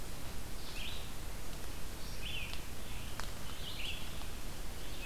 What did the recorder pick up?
Red-eyed Vireo